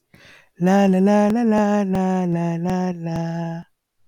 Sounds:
Sigh